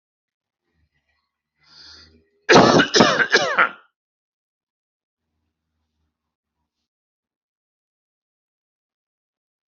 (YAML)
expert_labels:
- quality: ok
  cough_type: wet
  dyspnea: false
  wheezing: false
  stridor: false
  choking: false
  congestion: false
  nothing: true
  diagnosis: lower respiratory tract infection
  severity: mild